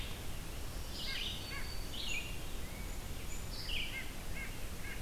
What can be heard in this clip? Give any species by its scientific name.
Sitta carolinensis, Vireo olivaceus, Setophaga virens